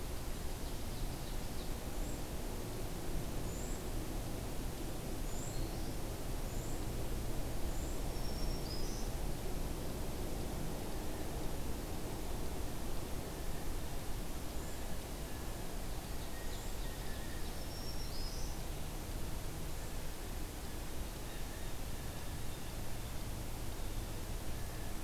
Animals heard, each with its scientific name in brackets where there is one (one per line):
Cedar Waxwing (Bombycilla cedrorum)
Blue Jay (Cyanocitta cristata)
Black-throated Green Warbler (Setophaga virens)
Ovenbird (Seiurus aurocapilla)